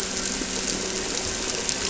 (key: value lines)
label: anthrophony, boat engine
recorder: SoundTrap 300